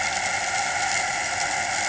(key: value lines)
label: anthrophony, boat engine
recorder: HydroMoth